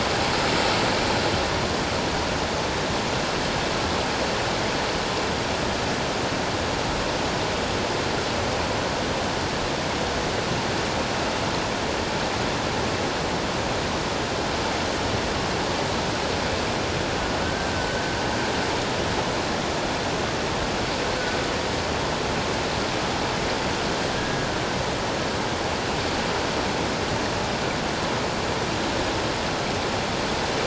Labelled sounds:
17.4	18.0	humpback whale, 1.4 to 1.6 kHz
24.1	24.5	humpback whale, 1.6 to 1.7 kHz

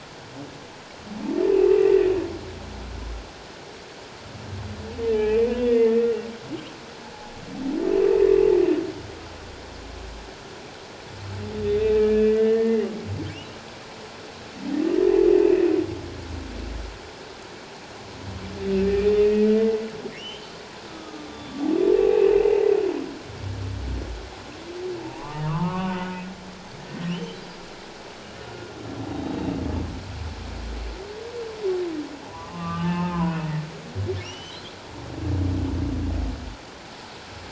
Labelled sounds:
5.1	6.1	humpback whale, 1.8 to 2.8 kHz
11.7	12.9	humpback whale, 1.7 to 3.8 kHz
18.8	19.5	humpback whale, 1.8 to 2.6 kHz
20.2	20.5	humpback whale, 2.6 to 3.2 kHz
20.9	22.3	humpback whale, 1.1 to 3.8 kHz
25.0	27.4	humpback whale, 0.78 to 3.2 kHz
29.1	29.5	humpback whale, 3.7 to 3.9 kHz
32.3	33.4	humpback whale, 0.84 to 2.8 kHz
34.2	34.6	humpback whale, 2.5 to 3.2 kHz

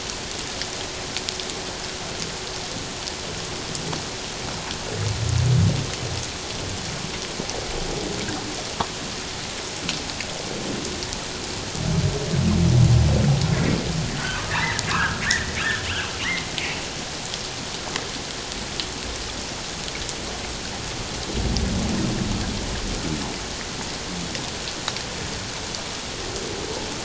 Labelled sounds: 14.2	15.6	humpback whale, 0.84 to 2.1 kHz
16.2	16.5	humpback whale, 1.8 to 2.2 kHz

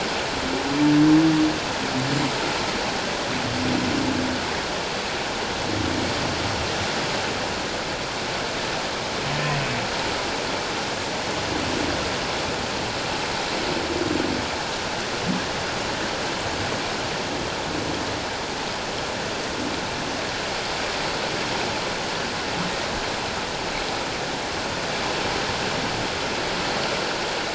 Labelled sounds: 9.5	9.8	humpback whale, 2.5 to 2.7 kHz

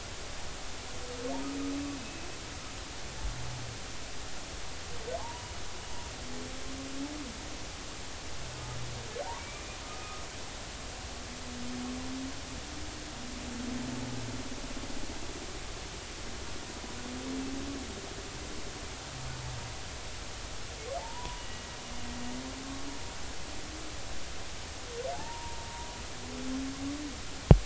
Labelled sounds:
2.0	2.3	humpback whale, 2.5 to 2.6 kHz
5.2	5.5	humpback whale, 0.80 to 1.1 kHz
9.4	10.2	humpback whale, 1.2 to 2.5 kHz
21.0	21.4	humpback whale, 0.80 to 1.0 kHz
25.1	25.7	humpback whale, 0.80 to 1.1 kHz

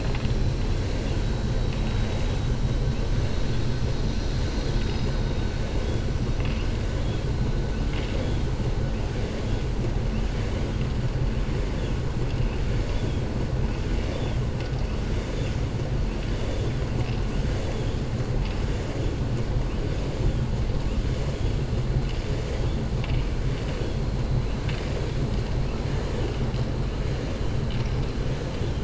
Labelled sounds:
13.9	14.4	vessel noise, 2.3 to 4.7 kHz

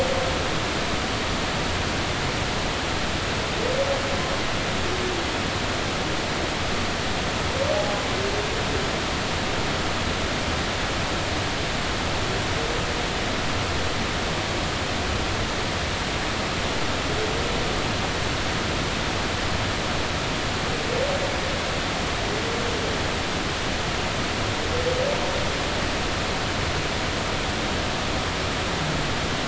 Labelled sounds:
7.7	8.0	humpback whale, 0.80 to 0.86 kHz

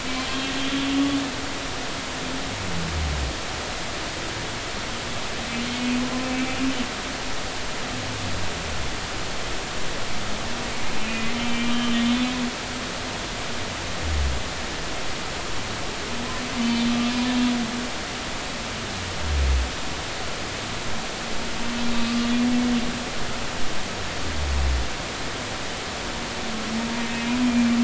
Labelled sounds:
0.2	0.5	humpback whale, 3.1 to 3.3 kHz
6.2	6.6	humpback whale, 2.2 to 2.4 kHz
11.0	12.0	humpback whale, 2.0 to 3.2 kHz
12.4	12.7	humpback whale, 2.3 to 2.4 kHz
27.5	27.8	humpback whale, 2.3 to 2.4 kHz

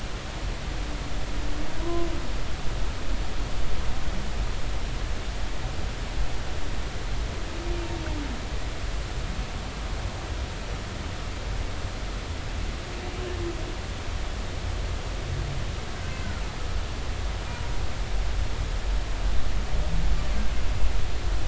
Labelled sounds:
1.8	2.1	humpback whale, 0.96 to 1.1 kHz

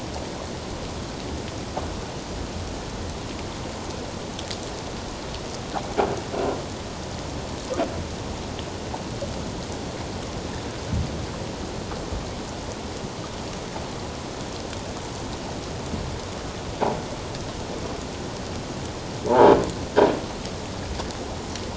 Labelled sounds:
19.3	19.5	croaking sound likely from a nearby submerged object, 0.78 to 1.0 kHz

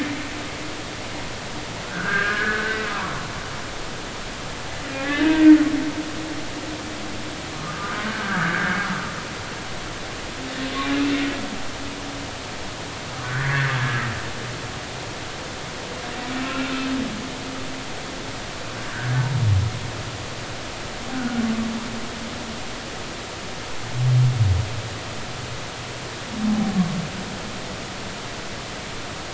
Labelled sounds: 1.8	3.1	humpback whale, 0.90 to 1.8 kHz
5.2	5.6	humpback whale, 1.5 to 1.9 kHz
7.6	8.9	humpback whale, 1.1 to 1.8 kHz
13.2	13.8	humpback whale, 1.4 to 2.2 kHz
21.1	21.4	humpback whale, 1.4 to 1.6 kHz

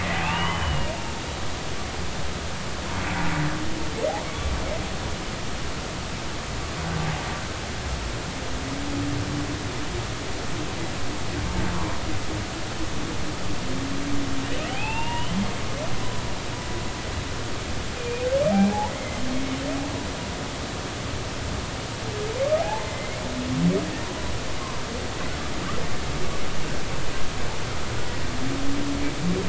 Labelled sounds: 0.1	0.9	humpback whale, 2.4 to 3.1 kHz
14.7	15.4	humpback whale, 0.80 to 3.1 kHz
18.0	18.3	humpback whale, 2.3 to 2.5 kHz
18.9	19.2	humpback whale, 1.9 to 2.2 kHz
22.6	23.2	humpback whale, 0.80 to 2.2 kHz

